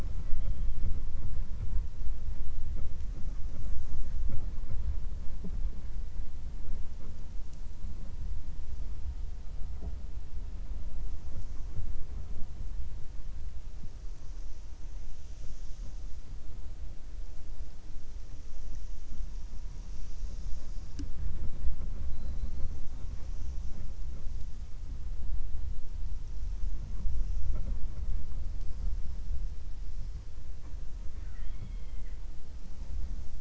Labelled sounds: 22.1	22.6	killer whale, 3.9 to 4.4 kHz

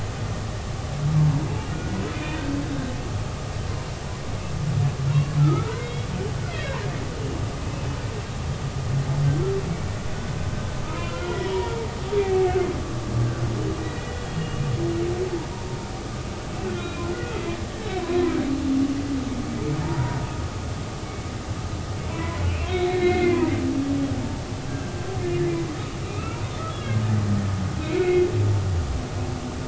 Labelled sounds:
1.2	2.4	humpback whale, 0.90 to 3.6 kHz
5.4	6.1	humpback whale, 1.2 to 3.9 kHz
11.0	11.8	humpback whale, 0.90 to 3.4 kHz
12.2	12.6	humpback whale, 2.1 to 2.4 kHz
13.8	14.6	humpback whale, 1.9 to 2.9 kHz
16.8	17.1	humpback whale, 1.3 to 3.9 kHz
19.8	20.2	humpback whale, 0.86 to 1.0 kHz
22.1	23.6	humpback whale, 0.93 to 4.1 kHz
24.7	25.0	humpback whale, 1.5 to 1.7 kHz
26.0	27.0	humpback whale, 1.2 to 3.5 kHz
27.8	28.3	humpback whale, 2.0 to 2.7 kHz

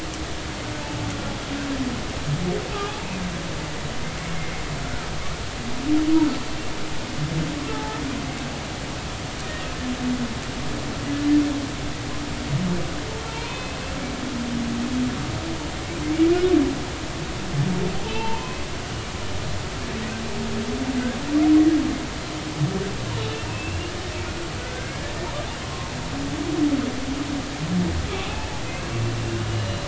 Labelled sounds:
2.7	3.0	humpback whale, 1.1 to 1.3 kHz
4.2	4.5	humpback whale, 2.0 to 2.3 kHz
7.7	8.0	humpback whale, 0.80 to 0.90 kHz
13.2	13.8	humpback whale, 0.86 to 2.6 kHz
18.0	18.6	humpback whale, 0.83 to 3.2 kHz
23.5	23.9	humpback whale, 2.5 to 2.9 kHz
24.6	25.1	humpback whale, 1.4 to 2.2 kHz
25.6	25.9	humpback whale, 0.99 to 1.1 kHz
28.1	29.8	humpback whale, 2.5 to 4.1 kHz

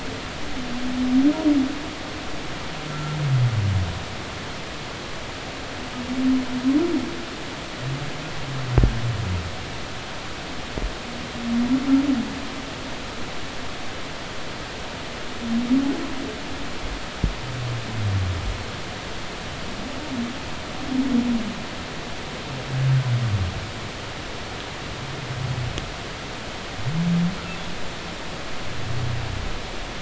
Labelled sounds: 2.9	3.2	humpback whale, 1.3 to 1.4 kHz

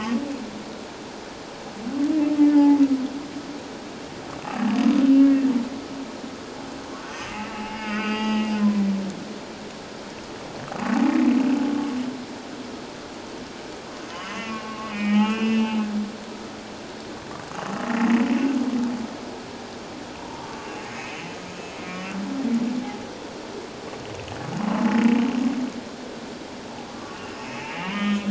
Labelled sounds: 2.5	2.8	humpback whale, 0.81 to 1.8 kHz
7.5	8.9	humpback whale, 0.81 to 5.0 kHz
14.3	15.9	humpback whale, 1.0 to 3.3 kHz
17.9	18.2	humpback whale, 1.8 to 2.0 kHz
20.2	20.9	humpback whale, 0.88 to 2.8 kHz
21.6	22.0	humpback whale, 2.1 to 2.7 kHz
26.9	28.2	humpback whale, 0.81 to 3.1 kHz

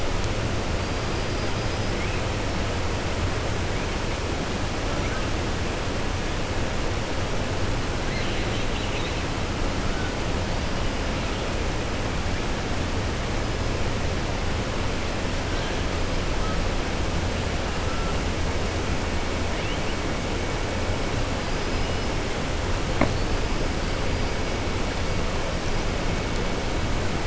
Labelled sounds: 1.0	1.9	killer whale, 4.6 to 5.2 kHz
8.0	9.2	killer whale, 1.6 to 4.2 kHz
21.5	22.0	killer whale, 4.1 to 5.2 kHz

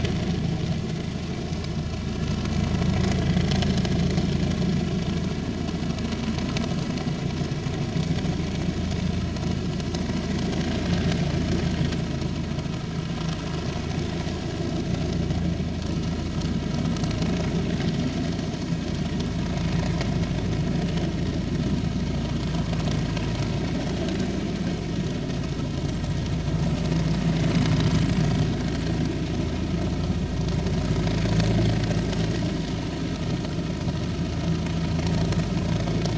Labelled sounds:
3.2	3.4	vessel noise, 3.1 to 3.6 kHz

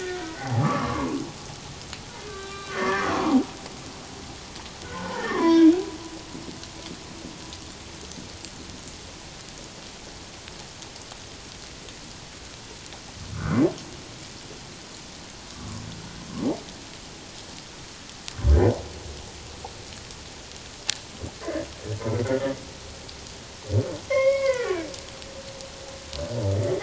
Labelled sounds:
1.1	1.4	humpback whale, 5.0 to 5.2 kHz
2.3	3.4	humpback whale, 0.78 to 2.4 kHz
4.8	5.7	humpback whale, 0.94 to 3.5 kHz
15.5	15.8	humpback whale, 1.0 to 1.3 kHz
24.1	24.9	humpback whale, 0.94 to 5.5 kHz

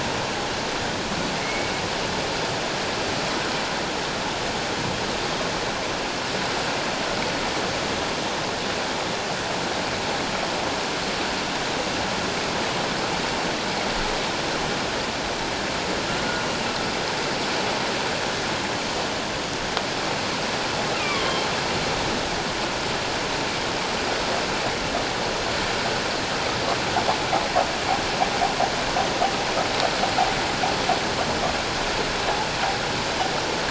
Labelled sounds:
1.4	1.7	humpback whale, 2.1 to 2.3 kHz
20.9	21.5	humpback whale, 1.0 to 3.4 kHz

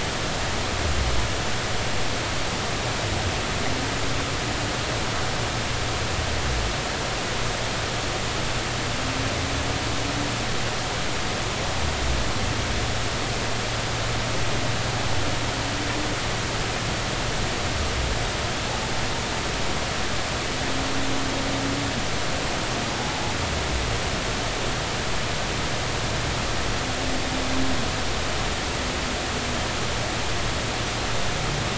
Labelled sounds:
23.0	23.3	humpback whale, 0.80 to 0.96 kHz

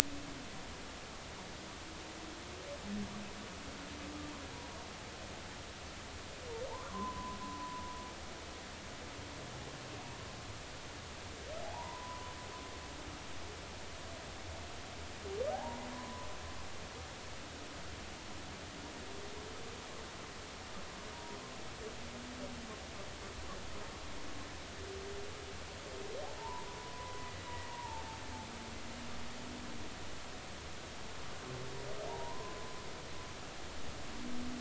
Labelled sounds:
6.7	7.8	humpback whale, 0.83 to 1.2 kHz
11.6	12.3	humpback whale, 0.80 to 1.1 kHz
15.5	16.3	humpback whale, 0.80 to 1.1 kHz
26.4	27.2	humpback whale, 0.83 to 1.1 kHz
27.7	28.0	humpback whale, 0.83 to 1.1 kHz
32.1	32.7	humpback whale, 0.80 to 1.1 kHz

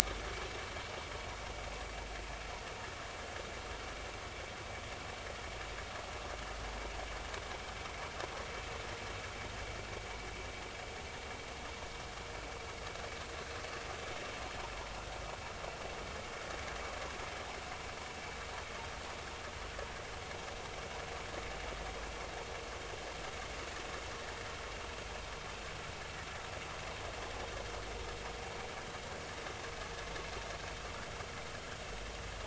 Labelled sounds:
1.0	1.3	vessel noise, 2.0 to 2.3 kHz

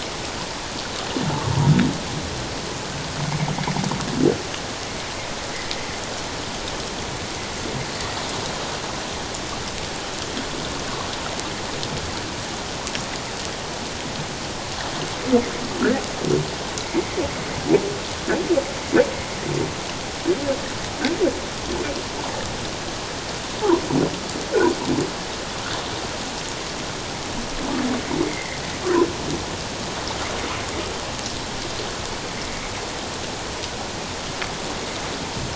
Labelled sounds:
16.8	17.2	humpback whale, 1.9 to 2.3 kHz
28.3	28.6	humpback whale, 1.8 to 2.2 kHz

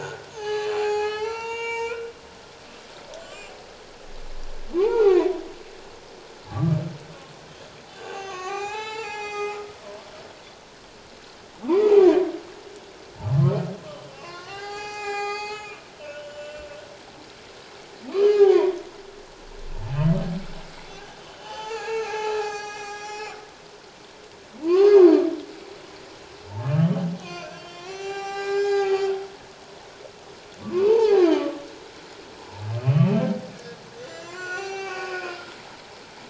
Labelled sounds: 0.0	2.1	humpback whale, 0.78 to 7.5 kHz
3.2	3.5	humpback whale, 1.4 to 7.5 kHz
4.8	5.3	humpback whale, 0.78 to 2.6 kHz
6.5	6.8	humpback whale, 1.1 to 1.3 kHz
8.0	10.1	humpback whale, 0.78 to 7.5 kHz
14.1	15.8	humpback whale, 0.78 to 8.0 kHz
16.1	16.7	humpback whale, 1.4 to 3.1 kHz
18.0	18.8	humpback whale, 0.78 to 2.6 kHz
21.4	23.4	humpback whale, 0.78 to 7.6 kHz
24.6	25.0	humpback whale, 0.88 to 1.7 kHz
26.7	29.1	humpback whale, 0.78 to 7.6 kHz
30.6	31.6	humpback whale, 0.78 to 1.3 kHz
32.8	33.1	humpback whale, 2.4 to 3.1 kHz
34.0	35.4	humpback whale, 0.78 to 7.4 kHz

